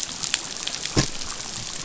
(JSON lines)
{"label": "biophony", "recorder": "SoundTrap 500"}